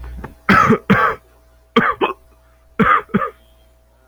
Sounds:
Cough